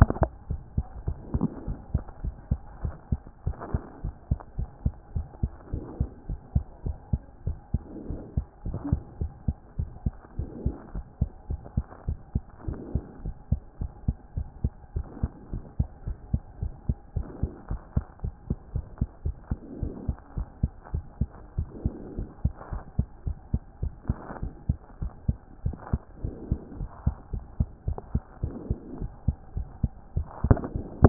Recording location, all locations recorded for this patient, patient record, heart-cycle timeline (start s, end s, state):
mitral valve (MV)
pulmonary valve (PV)+tricuspid valve (TV)+mitral valve (MV)
#Age: Child
#Sex: Female
#Height: 90.0 cm
#Weight: 15.6 kg
#Pregnancy status: False
#Murmur: Absent
#Murmur locations: nan
#Most audible location: nan
#Systolic murmur timing: nan
#Systolic murmur shape: nan
#Systolic murmur grading: nan
#Systolic murmur pitch: nan
#Systolic murmur quality: nan
#Diastolic murmur timing: nan
#Diastolic murmur shape: nan
#Diastolic murmur grading: nan
#Diastolic murmur pitch: nan
#Diastolic murmur quality: nan
#Outcome: Normal
#Campaign: 2014 screening campaign
0.00	0.50	unannotated
0.50	0.60	S1
0.60	0.76	systole
0.76	0.86	S2
0.86	1.06	diastole
1.06	1.18	S1
1.18	1.32	systole
1.32	1.44	S2
1.44	1.66	diastole
1.66	1.78	S1
1.78	1.92	systole
1.92	2.02	S2
2.02	2.24	diastole
2.24	2.34	S1
2.34	2.50	systole
2.50	2.60	S2
2.60	2.82	diastole
2.82	2.94	S1
2.94	3.10	systole
3.10	3.20	S2
3.20	3.46	diastole
3.46	3.56	S1
3.56	3.72	systole
3.72	3.82	S2
3.82	4.04	diastole
4.04	4.14	S1
4.14	4.30	systole
4.30	4.38	S2
4.38	4.58	diastole
4.58	4.68	S1
4.68	4.84	systole
4.84	4.94	S2
4.94	5.14	diastole
5.14	5.26	S1
5.26	5.42	systole
5.42	5.52	S2
5.52	5.72	diastole
5.72	5.84	S1
5.84	5.98	systole
5.98	6.08	S2
6.08	6.28	diastole
6.28	6.40	S1
6.40	6.54	systole
6.54	6.64	S2
6.64	6.86	diastole
6.86	6.96	S1
6.96	7.12	systole
7.12	7.22	S2
7.22	7.46	diastole
7.46	7.58	S1
7.58	7.72	systole
7.72	7.82	S2
7.82	8.08	diastole
8.08	8.20	S1
8.20	8.36	systole
8.36	8.46	S2
8.46	8.66	diastole
8.66	8.78	S1
8.78	8.90	systole
8.90	9.00	S2
9.00	9.20	diastole
9.20	9.32	S1
9.32	9.46	systole
9.46	9.56	S2
9.56	9.78	diastole
9.78	9.90	S1
9.90	10.04	systole
10.04	10.14	S2
10.14	10.38	diastole
10.38	10.50	S1
10.50	10.64	systole
10.64	10.74	S2
10.74	10.94	diastole
10.94	11.04	S1
11.04	11.20	systole
11.20	11.30	S2
11.30	11.50	diastole
11.50	11.60	S1
11.60	11.76	systole
11.76	11.84	S2
11.84	12.06	diastole
12.06	12.18	S1
12.18	12.34	systole
12.34	12.44	S2
12.44	12.66	diastole
12.66	12.78	S1
12.78	12.94	systole
12.94	13.02	S2
13.02	13.24	diastole
13.24	13.34	S1
13.34	13.50	systole
13.50	13.60	S2
13.60	13.80	diastole
13.80	13.92	S1
13.92	14.06	systole
14.06	14.16	S2
14.16	14.36	diastole
14.36	14.46	S1
14.46	14.62	systole
14.62	14.72	S2
14.72	14.94	diastole
14.94	15.06	S1
15.06	15.22	systole
15.22	15.30	S2
15.30	15.52	diastole
15.52	15.64	S1
15.64	15.78	systole
15.78	15.88	S2
15.88	16.06	diastole
16.06	16.18	S1
16.18	16.32	systole
16.32	16.42	S2
16.42	16.60	diastole
16.60	16.72	S1
16.72	16.88	systole
16.88	16.96	S2
16.96	17.16	diastole
17.16	17.26	S1
17.26	17.42	systole
17.42	17.50	S2
17.50	17.70	diastole
17.70	17.80	S1
17.80	17.96	systole
17.96	18.04	S2
18.04	18.24	diastole
18.24	18.34	S1
18.34	18.48	systole
18.48	18.58	S2
18.58	18.74	diastole
18.74	18.86	S1
18.86	19.00	systole
19.00	19.08	S2
19.08	19.24	diastole
19.24	19.36	S1
19.36	19.50	systole
19.50	19.58	S2
19.58	19.80	diastole
19.80	19.92	S1
19.92	20.06	systole
20.06	20.16	S2
20.16	20.36	diastole
20.36	20.48	S1
20.48	20.62	systole
20.62	20.72	S2
20.72	20.92	diastole
20.92	21.04	S1
21.04	21.20	systole
21.20	21.28	S2
21.28	21.56	diastole
21.56	21.68	S1
21.68	21.84	systole
21.84	21.94	S2
21.94	22.16	diastole
22.16	22.28	S1
22.28	22.44	systole
22.44	22.54	S2
22.54	22.72	diastole
22.72	22.82	S1
22.82	22.98	systole
22.98	23.08	S2
23.08	23.26	diastole
23.26	23.36	S1
23.36	23.52	systole
23.52	23.62	S2
23.62	23.82	diastole
23.82	23.92	S1
23.92	24.08	systole
24.08	24.18	S2
24.18	24.42	diastole
24.42	24.52	S1
24.52	24.68	systole
24.68	24.78	S2
24.78	25.00	diastole
25.00	25.12	S1
25.12	25.26	systole
25.26	25.36	S2
25.36	25.64	diastole
25.64	25.76	S1
25.76	25.92	systole
25.92	26.00	S2
26.00	26.24	diastole
26.24	26.36	S1
26.36	26.50	systole
26.50	26.58	S2
26.58	26.78	diastole
26.78	26.90	S1
26.90	27.06	systole
27.06	27.16	S2
27.16	27.32	diastole
27.32	27.44	S1
27.44	27.58	systole
27.58	27.68	S2
27.68	27.86	diastole
27.86	27.98	S1
27.98	28.14	systole
28.14	28.22	S2
28.22	28.42	diastole
28.42	28.54	S1
28.54	28.68	systole
28.68	28.78	S2
28.78	28.98	diastole
28.98	29.10	S1
29.10	29.26	systole
29.26	29.36	S2
29.36	29.56	diastole
29.56	29.66	S1
29.66	29.82	systole
29.82	29.90	S2
29.90	30.16	diastole
30.16	31.09	unannotated